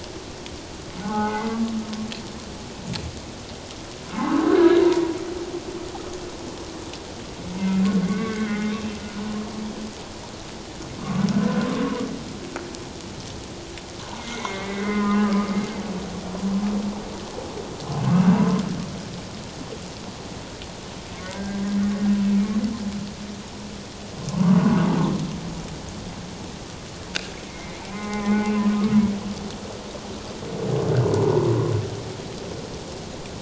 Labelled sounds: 1.0	1.7	humpback whale, 0.78 to 2.2 kHz
4.1	4.8	humpback whale, 0.78 to 1.8 kHz
7.6	8.7	humpback whale, 1.1 to 2.3 kHz
11.3	11.7	humpback whale, 1.4 to 1.6 kHz
14.2	15.4	humpback whale, 0.97 to 2.3 kHz
18.3	18.6	humpback whale, 0.84 to 1.2 kHz
21.2	21.7	humpback whale, 1.4 to 1.7 kHz
24.3	24.6	humpback whale, 0.91 to 1.2 kHz
27.5	28.5	humpback whale, 0.97 to 2.3 kHz
31.1	31.5	humpback whale, 0.84 to 1.0 kHz

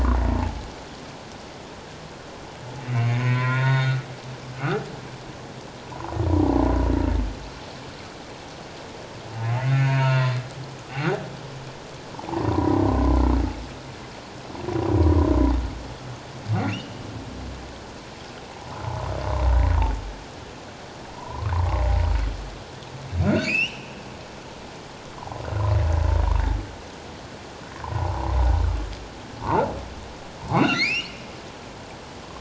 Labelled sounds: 2.8	4.1	humpback whale, 0.88 to 4.4 kHz
4.6	4.8	humpback whale, 1.1 to 1.6 kHz
9.7	10.3	humpback whale, 0.88 to 4.5 kHz
12.3	12.8	humpback whale, 0.78 to 1.1 kHz
16.7	17.0	humpback whale, 2.6 to 3.1 kHz
21.1	21.5	humpback whale, 0.91 to 1.3 kHz
23.2	23.9	humpback whale, 1.3 to 5.8 kHz
25.2	25.4	humpback whale, 0.78 to 1.2 kHz
27.8	28.4	humpback whale, 0.78 to 1.1 kHz
30.5	31.2	humpback whale, 1.8 to 5.8 kHz

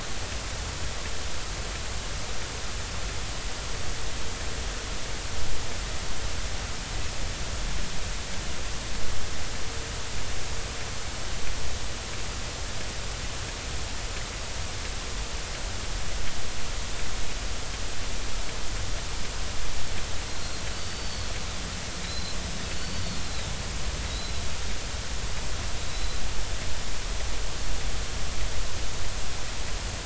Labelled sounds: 20.3	21.3	Pacific white-sided dolphin, 4.1 to 4.6 kHz
22.0	23.2	Pacific white-sided dolphin, 3.8 to 4.6 kHz
24.0	24.3	Pacific white-sided dolphin, 3.7 to 4.1 kHz
25.9	26.2	Pacific white-sided dolphin, 3.8 to 4.1 kHz

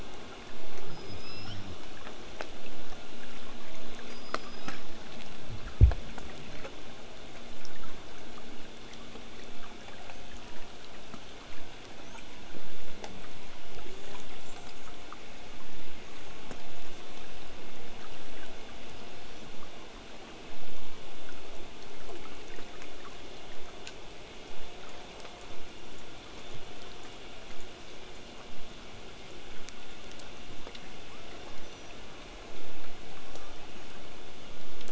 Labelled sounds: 0.9	1.6	killer whale, southern resident, L pod, call S19, 1.1 to 8.0 kHz
4.0	4.8	killer whale, southern resident, L pod, call S19, 1.1 to 8.0 kHz
12.0	12.3	killer whale, southern resident, whistle, 5.4 to 8.0 kHz
13.8	15.0	killer whale, southern resident, call S10, 5.5 to 8.0 kHz
16.0	17.2	killer whale, southern resident, call S10, 5.1 to 8.0 kHz
22.5	27.5	vessel noise, 0 to 8.0 kHz
31.1	31.9	killer whale, southern resident, 0.89 to 6.2 kHz

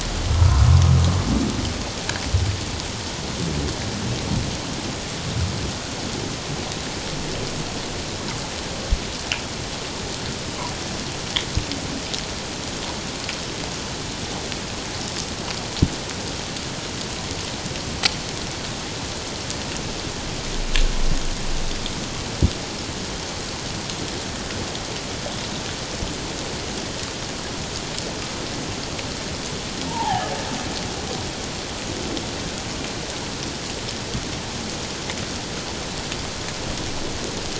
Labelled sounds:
0.4	0.7	humpback whale, 1.2 to 1.5 kHz
29.9	30.3	humpback whale, 0.78 to 1.9 kHz

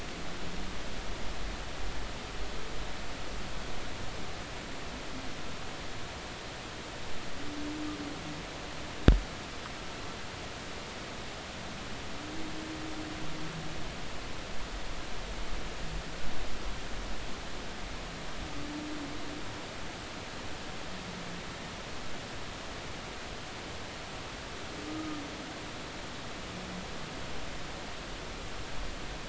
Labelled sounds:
24.8	25.2	humpback whale, 1.2 to 1.3 kHz

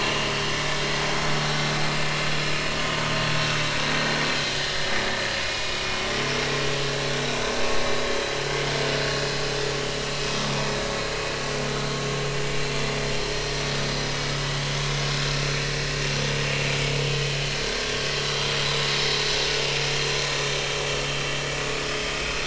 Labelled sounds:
0.0	0.4	vessel noise, 2.6 to 2.9 kHz
1.6	1.8	vessel noise, 6.2 to 6.3 kHz
2.5	2.7	vessel noise, 2.4 to 2.5 kHz
5.4	5.8	vessel noise, 2.4 to 2.5 kHz

